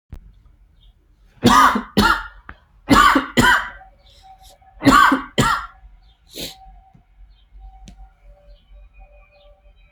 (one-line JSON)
{"expert_labels": [{"quality": "good", "cough_type": "dry", "dyspnea": false, "wheezing": false, "stridor": false, "choking": false, "congestion": true, "nothing": false, "diagnosis": "upper respiratory tract infection", "severity": "mild"}], "age": 35, "gender": "male", "respiratory_condition": true, "fever_muscle_pain": false, "status": "symptomatic"}